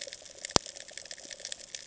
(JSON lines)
{"label": "ambient", "recorder": "HydroMoth"}